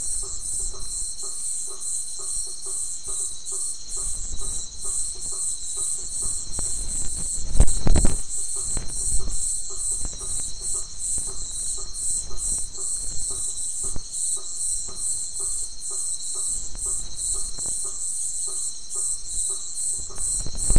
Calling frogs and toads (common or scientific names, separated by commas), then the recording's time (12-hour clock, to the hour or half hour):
blacksmith tree frog
10:30pm